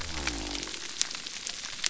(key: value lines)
label: biophony
recorder: SoundTrap 300